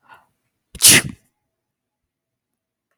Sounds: Sneeze